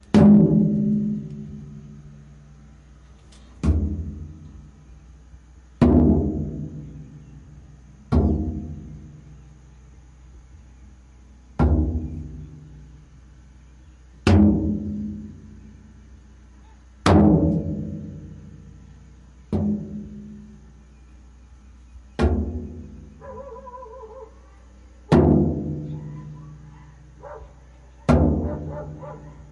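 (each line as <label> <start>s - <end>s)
A drum is being hit outdoors. 0.0s - 2.7s
A drum is being hit outdoors. 3.6s - 5.1s
A drum is being hit outdoors. 5.7s - 7.4s
A drum is being hit outdoors. 8.0s - 9.6s
A drum is being hit outdoors. 11.6s - 13.4s
A drum is being hit outdoors. 14.2s - 15.9s
A drum is being hit outdoors. 17.0s - 20.8s
A drum is being hit outdoors. 22.1s - 23.1s
A dog barks in the distance. 23.3s - 24.4s
A drum is being hit outdoors. 25.0s - 27.0s
A dog barks in the distance. 27.2s - 29.5s
A drum is being hit outdoors. 28.0s - 29.5s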